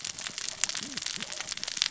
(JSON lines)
{"label": "biophony, cascading saw", "recorder": "SoundTrap 600 or HydroMoth"}